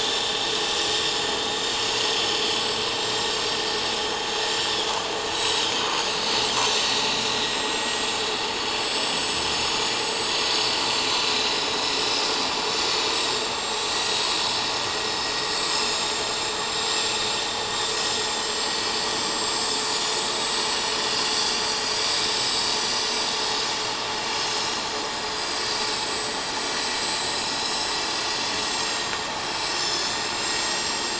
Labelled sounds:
0.1	1.0	vessel noise, 7.1 to 7.3 kHz
1.4	3.3	vessel noise, 3.6 to 7.9 kHz
4.7	5.0	vessel noise, 3.2 to 3.7 kHz
5.3	6.1	vessel noise, 3.8 to 8.0 kHz
6.5	8.1	vessel noise, 4.9 to 7.8 kHz
8.6	12.4	vessel noise, 3.7 to 8.0 kHz
13.1	14.6	vessel noise, 6.5 to 7.8 kHz
15.5	17.2	vessel noise, 6.8 to 7.7 kHz
17.7	21.0	vessel noise, 6.6 to 7.8 kHz
22.3	22.7	vessel noise, 5.0 to 5.3 kHz
23.7	24.0	vessel noise, 4.2 to 4.4 kHz
24.3	24.6	vessel noise, 5.2 to 7.5 kHz
25.3	31.1	vessel noise, 3.3 to 8.0 kHz

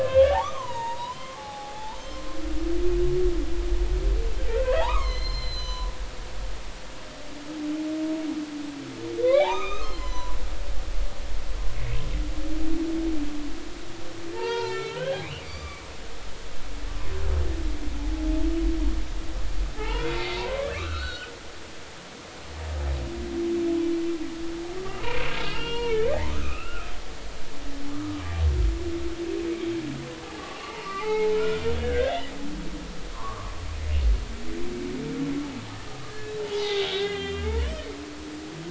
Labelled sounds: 0.0	2.4	humpback whale, 0.80 to 6.6 kHz
4.8	5.9	humpback whale, 0.80 to 7.3 kHz
9.2	10.4	humpback whale, 0.80 to 6.4 kHz
14.3	15.8	humpback whale, 0.83 to 5.5 kHz
18.0	18.3	humpback whale, 0.80 to 0.90 kHz
19.8	21.3	humpback whale, 0.80 to 4.5 kHz
24.8	26.9	humpback whale, 0.90 to 3.4 kHz
27.9	28.2	humpback whale, 1.1 to 1.3 kHz
30.2	32.3	humpback whale, 0.80 to 2.9 kHz
33.1	33.5	humpback whale, 0.86 to 1.3 kHz
36.1	37.9	humpback whale, 0.80 to 3.9 kHz

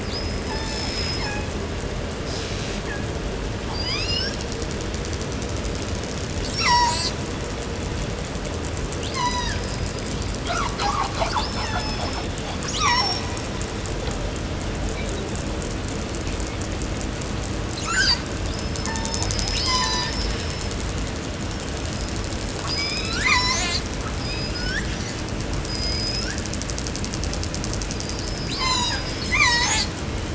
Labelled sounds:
0.0	1.6	killer whale, southern resident, call S36, 0.47 to 8.0 kHz
2.2	3.3	killer whale, southern resident, 0.61 to 8.0 kHz
3.5	4.6	killer whale, southern resident, call S19, 0.42 to 8.0 kHz
6.4	7.3	killer whale, southern resident, call S36, 0.53 to 8.0 kHz
8.9	10.3	killer whale, southern resident, call S36, 0.61 to 8.0 kHz
10.3	12.7	killer whale, southern resident, call S10, 0.32 to 7.4 kHz
11.3	12.3	killer whale, southern resident, call S36, 0.28 to 6.0 kHz
12.7	13.3	killer whale, southern resident, call S36, 0.49 to 8.0 kHz
17.6	18.3	killer whale, southern resident, 0.53 to 8.0 kHz
18.4	20.9	killer whale, southern resident, call S36, 0.38 to 8.0 kHz
22.5	23.4	killer whale, southern resident, call S19, 0.78 to 8.0 kHz
23.1	24.0	killer whale, southern resident, call S36, 0.40 to 8.0 kHz
24.1	24.9	killer whale, southern resident, call S19, 0.70 to 8.0 kHz
25.6	26.5	killer whale, southern resident, call S19, 0.87 to 8.0 kHz
27.8	30.3	killer whale, southern resident, 0.36 to 8.0 kHz

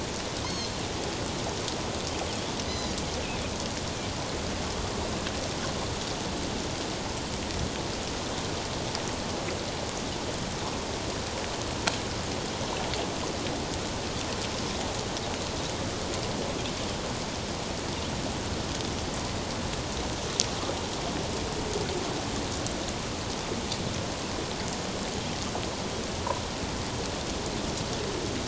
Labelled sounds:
0.4	0.7	Pacific white-sided dolphin, 4.1 to 6.6 kHz
2.7	2.9	Pacific white-sided dolphin, 4.8 to 6.1 kHz

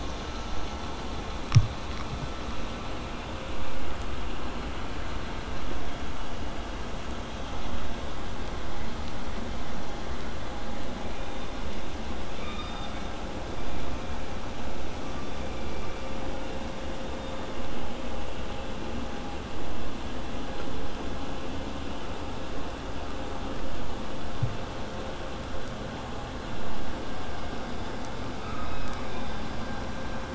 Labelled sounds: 12.4	13.2	killer whale, southern resident, K pod, call S16, 1.1 to 5.0 kHz
28.4	29.5	killer whale, southern resident, 1.1 to 5.2 kHz

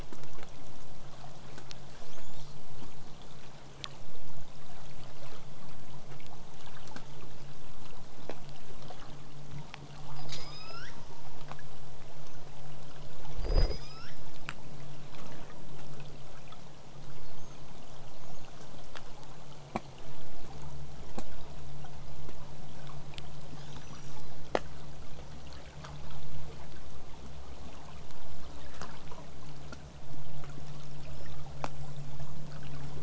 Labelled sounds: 3.0	8.0	vessel noise, 0 to 8.0 kHz
10.1	11.0	killer whale, southern resident, L pod, call S19, 0.93 to 8.0 kHz
13.4	14.4	killer whale, southern resident, L pod, call S19, 1.1 to 8.0 kHz
17.2	17.7	killer whale, southern resident, whistle, 6.1 to 6.6 kHz
18.2	18.4	killer whale, southern resident, whistle, 5.5 to 6.9 kHz
23.5	24.4	killer whale, southern resident, L pod, call S02iii, 2.9 to 8.0 kHz
31.0	31.4	killer whale, southern resident, whistle, 4.8 to 8.0 kHz
31.7	32.4	killer whale, southern resident, whistle, 6.3 to 7.8 kHz

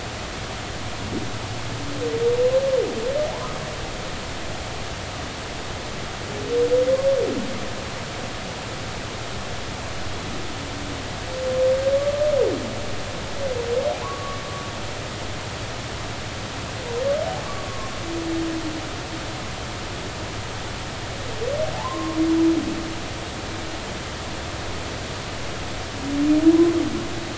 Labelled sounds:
3.3	3.6	humpback whale, 0.80 to 1.3 kHz
14.0	14.4	humpback whale, 0.96 to 1.2 kHz
21.7	22.2	humpback whale, 0.80 to 1.2 kHz

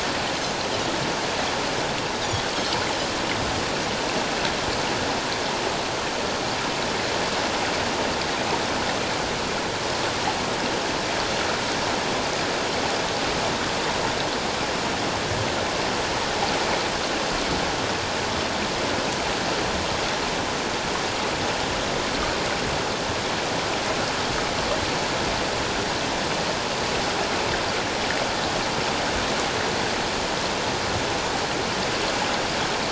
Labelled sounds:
2.2	2.5	Pacific white-sided dolphin, 3.2 to 3.9 kHz

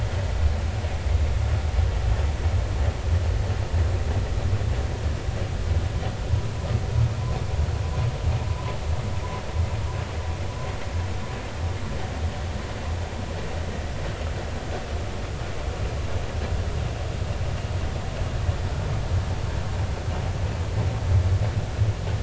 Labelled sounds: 8.5	8.7	humpback whale, 0.86 to 1.1 kHz

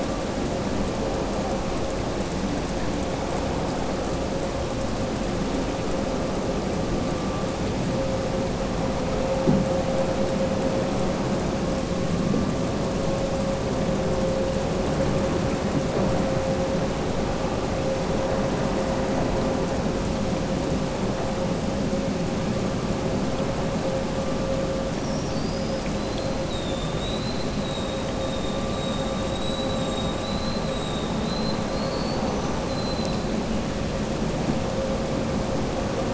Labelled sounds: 24.9	25.9	killer whale, southern resident, 4.5 to 5.8 kHz
31.2	32.6	killer whale, southern resident, 3.6 to 6.1 kHz

